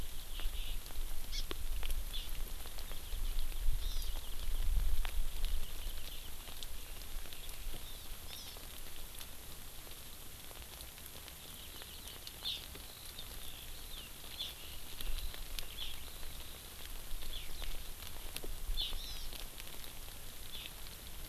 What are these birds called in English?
Hawaii Amakihi, Eurasian Skylark